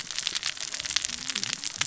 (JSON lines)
{"label": "biophony, cascading saw", "recorder": "SoundTrap 600 or HydroMoth"}